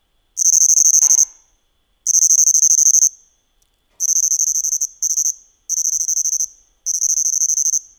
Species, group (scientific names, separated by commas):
Svercus palmetorum, Orthoptera